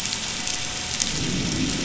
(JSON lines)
{"label": "anthrophony, boat engine", "recorder": "SoundTrap 500"}
{"label": "biophony, growl", "recorder": "SoundTrap 500"}